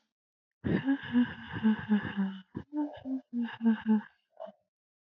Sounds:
Laughter